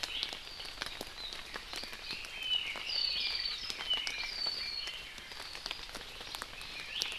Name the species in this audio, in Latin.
Himatione sanguinea